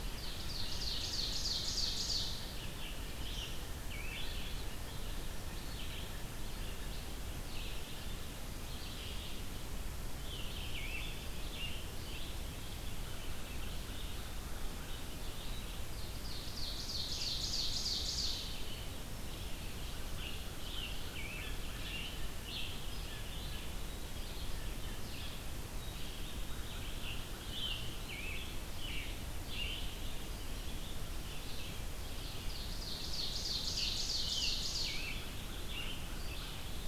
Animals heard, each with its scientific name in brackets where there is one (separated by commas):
American Crow (Corvus brachyrhynchos), Red-eyed Vireo (Vireo olivaceus), Scarlet Tanager (Piranga olivacea), Ovenbird (Seiurus aurocapilla)